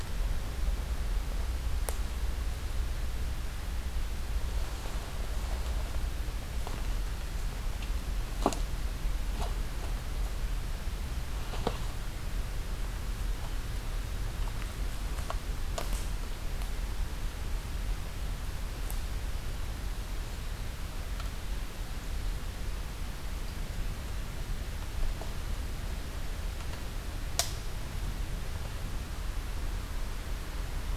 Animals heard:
forest ambience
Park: Acadia National Park